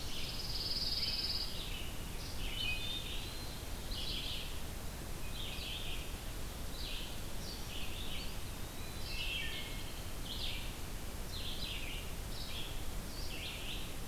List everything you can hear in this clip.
Ovenbird, Red-eyed Vireo, Pine Warbler, Wood Thrush, Eastern Wood-Pewee